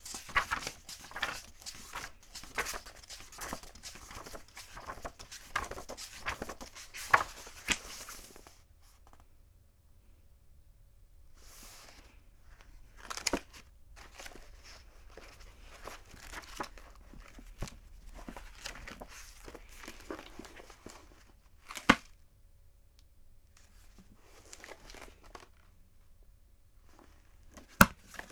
Is there an alarm going off?
no